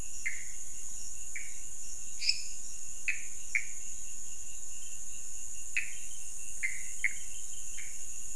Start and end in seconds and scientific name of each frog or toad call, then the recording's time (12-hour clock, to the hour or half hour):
0.0	8.3	Pithecopus azureus
2.1	2.7	Dendropsophus minutus
12:30am